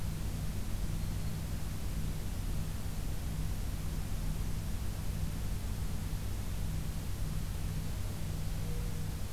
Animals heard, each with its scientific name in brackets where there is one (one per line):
Black-throated Green Warbler (Setophaga virens)
Mourning Dove (Zenaida macroura)